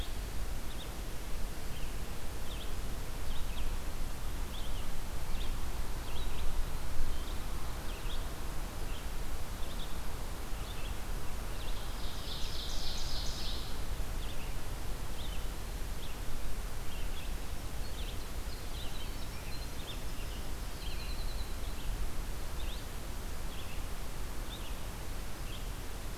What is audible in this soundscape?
Red-eyed Vireo, Ovenbird, Winter Wren